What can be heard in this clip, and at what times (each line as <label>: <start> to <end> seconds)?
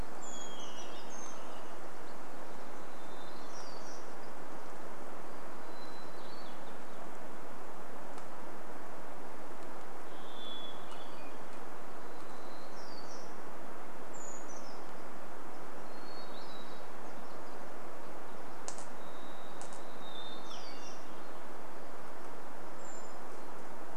Brown Creeper song: 0 to 2 seconds
Hermit Thrush song: 0 to 8 seconds
warbler song: 2 to 4 seconds
Hermit Thrush song: 10 to 12 seconds
warbler song: 12 to 14 seconds
Brown Creeper song: 14 to 16 seconds
Hermit Thrush song: 16 to 18 seconds
Varied Thrush song: 18 to 20 seconds
Hermit Thrush song: 20 to 22 seconds
warbler song: 20 to 22 seconds
Brown Creeper call: 22 to 24 seconds